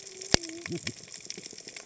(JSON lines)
{"label": "biophony, cascading saw", "recorder": "HydroMoth"}